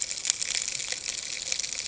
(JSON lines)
{"label": "ambient", "recorder": "HydroMoth"}